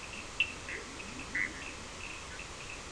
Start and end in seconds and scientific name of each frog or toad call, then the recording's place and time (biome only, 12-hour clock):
0.0	1.8	Leptodactylus latrans
0.6	2.9	Boana bischoffi
0.6	2.9	Sphaenorhynchus surdus
Atlantic Forest, 2:45am